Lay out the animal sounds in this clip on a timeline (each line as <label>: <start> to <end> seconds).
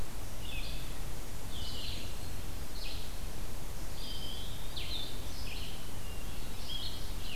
Red-eyed Vireo (Vireo olivaceus): 0.0 to 7.3 seconds
Blue-headed Vireo (Vireo solitarius): 1.4 to 7.3 seconds
Eastern Wood-Pewee (Contopus virens): 3.8 to 5.3 seconds
Hermit Thrush (Catharus guttatus): 6.0 to 6.9 seconds